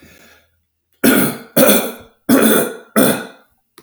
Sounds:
Throat clearing